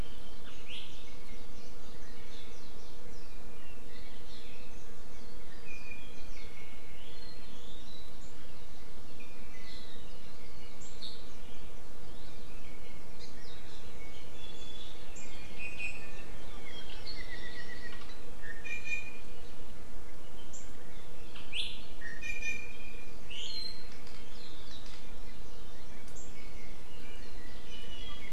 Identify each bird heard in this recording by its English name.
Iiwi, Apapane